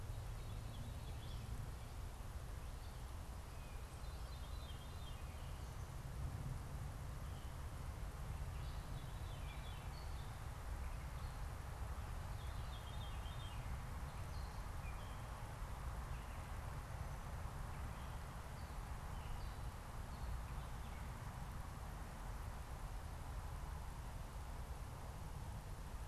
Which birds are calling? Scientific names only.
Catharus fuscescens, Dumetella carolinensis